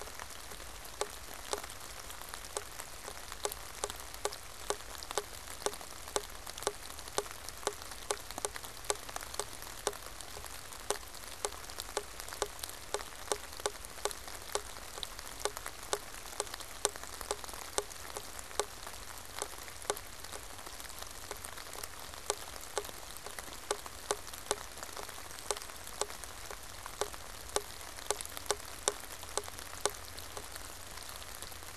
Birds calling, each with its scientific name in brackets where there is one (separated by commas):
unidentified bird